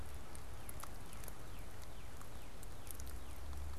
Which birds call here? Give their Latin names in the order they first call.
Cardinalis cardinalis